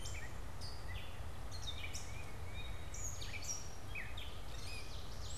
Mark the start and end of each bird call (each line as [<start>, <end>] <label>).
[0.00, 5.38] Gray Catbird (Dumetella carolinensis)
[1.37, 3.07] Tufted Titmouse (Baeolophus bicolor)
[4.37, 5.38] Ovenbird (Seiurus aurocapilla)